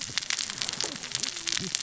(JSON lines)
{"label": "biophony, cascading saw", "recorder": "SoundTrap 600 or HydroMoth"}